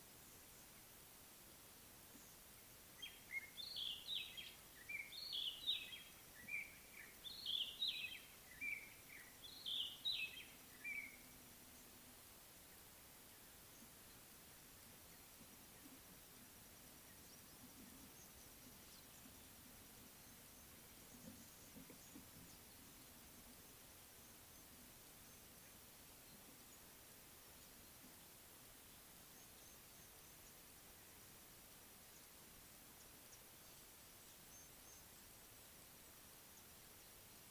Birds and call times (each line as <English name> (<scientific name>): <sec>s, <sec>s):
Spotted Morning-Thrush (Cichladusa guttata): 5.4s, 9.8s